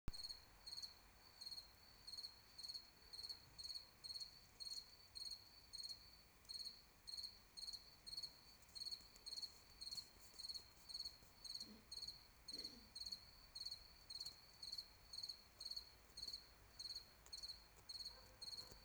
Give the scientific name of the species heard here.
Gryllus campestris